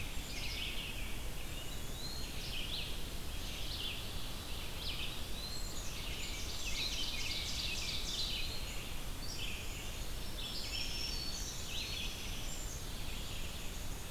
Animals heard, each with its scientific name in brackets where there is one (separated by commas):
Ovenbird (Seiurus aurocapilla), American Robin (Turdus migratorius), Red-eyed Vireo (Vireo olivaceus), Black-capped Chickadee (Poecile atricapillus), Black-throated Green Warbler (Setophaga virens)